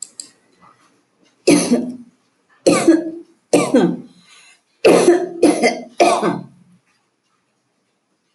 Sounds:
Cough